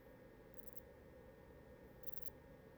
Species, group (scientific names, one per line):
Poecilimon chopardi
Orthoptera